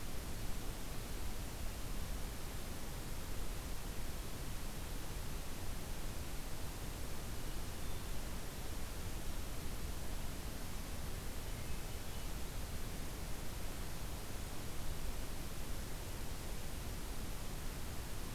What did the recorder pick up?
forest ambience